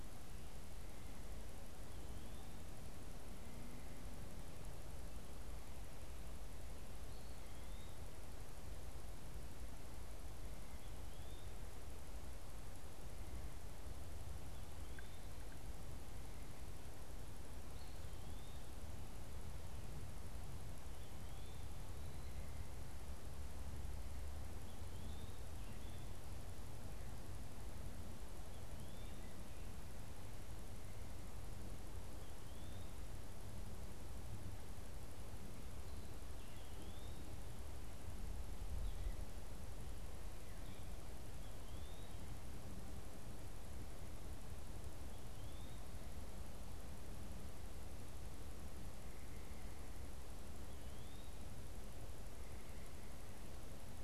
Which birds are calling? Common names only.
Eastern Wood-Pewee